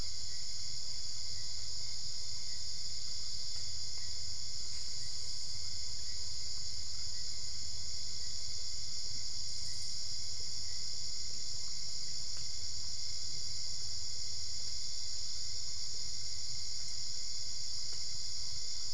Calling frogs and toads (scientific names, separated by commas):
none